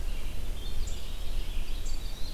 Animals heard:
Blue-headed Vireo (Vireo solitarius), Red-eyed Vireo (Vireo olivaceus), Winter Wren (Troglodytes hiemalis)

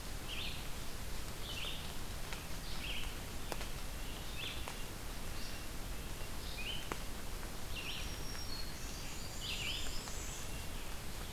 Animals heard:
Red-breasted Nuthatch (Sitta canadensis), Black-throated Green Warbler (Setophaga virens), Red-eyed Vireo (Vireo olivaceus), Blackburnian Warbler (Setophaga fusca)

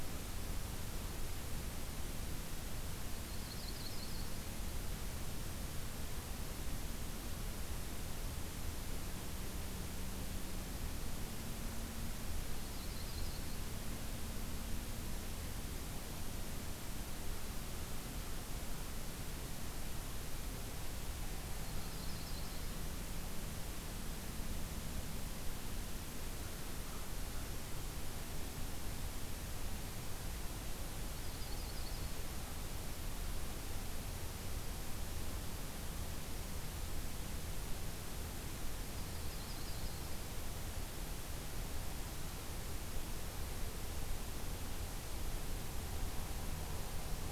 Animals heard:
Yellow-rumped Warbler (Setophaga coronata)

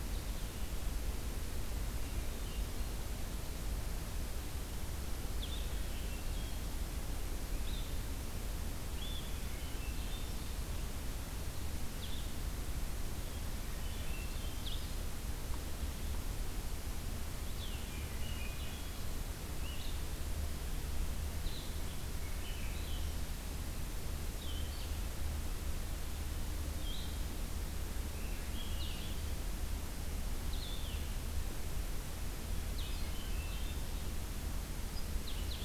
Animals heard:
Swainson's Thrush (Catharus ustulatus), Blue-headed Vireo (Vireo solitarius), American Goldfinch (Spinus tristis)

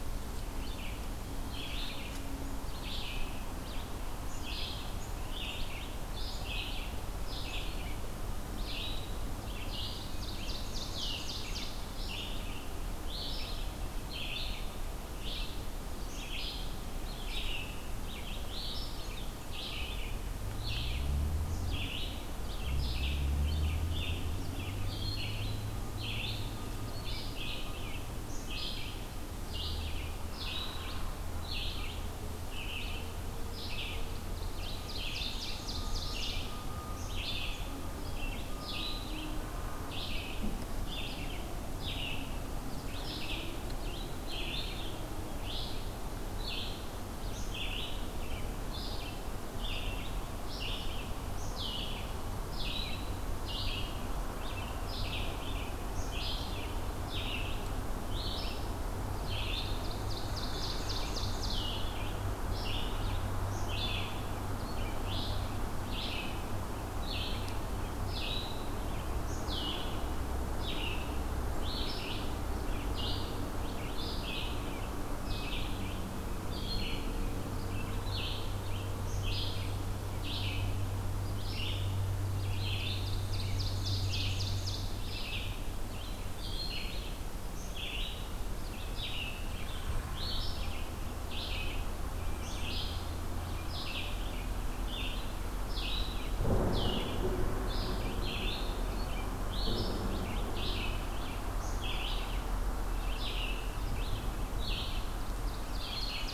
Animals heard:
Black-capped Chickadee (Poecile atricapillus), Red-eyed Vireo (Vireo olivaceus), Ovenbird (Seiurus aurocapilla)

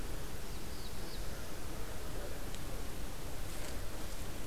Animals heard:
Black-throated Blue Warbler (Setophaga caerulescens)

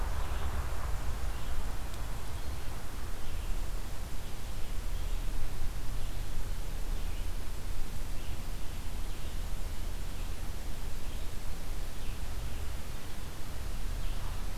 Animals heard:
Red-eyed Vireo (Vireo olivaceus)

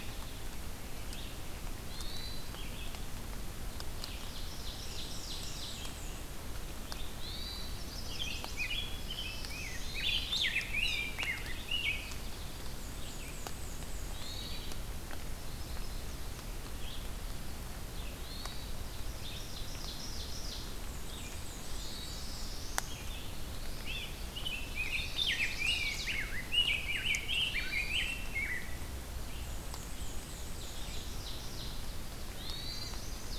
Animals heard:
Black-throated Blue Warbler (Setophaga caerulescens), Black-and-white Warbler (Mniotilta varia), Great Crested Flycatcher (Myiarchus crinitus), Ovenbird (Seiurus aurocapilla), Rose-breasted Grosbeak (Pheucticus ludovicianus), Hermit Thrush (Catharus guttatus), Blackburnian Warbler (Setophaga fusca), Chestnut-sided Warbler (Setophaga pensylvanica), Red-eyed Vireo (Vireo olivaceus)

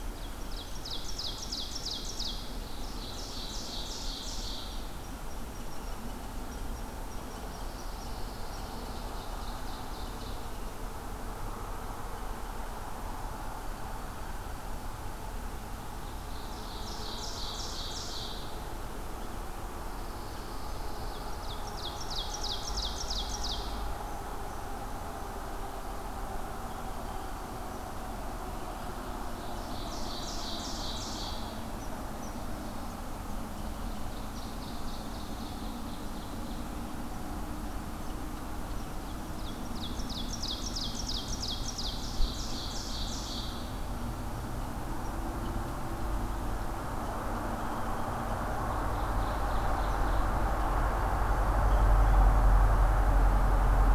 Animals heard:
Pine Warbler (Setophaga pinus), Red Squirrel (Tamiasciurus hudsonicus), Ovenbird (Seiurus aurocapilla)

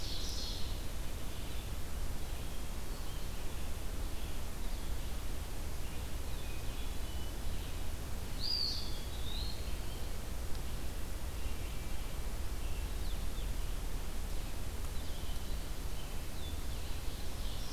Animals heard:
Ovenbird (Seiurus aurocapilla), Eastern Wood-Pewee (Contopus virens), Blue-headed Vireo (Vireo solitarius), Hermit Thrush (Catharus guttatus), Red-eyed Vireo (Vireo olivaceus)

